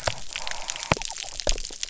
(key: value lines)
label: biophony
recorder: SoundTrap 300